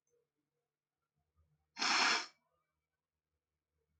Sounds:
Sniff